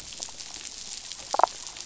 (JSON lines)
{"label": "biophony, damselfish", "recorder": "SoundTrap 500"}